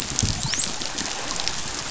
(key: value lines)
label: biophony, dolphin
recorder: SoundTrap 500